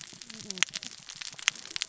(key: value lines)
label: biophony, cascading saw
recorder: SoundTrap 600 or HydroMoth